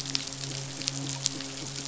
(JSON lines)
{"label": "biophony", "recorder": "SoundTrap 500"}
{"label": "biophony, midshipman", "recorder": "SoundTrap 500"}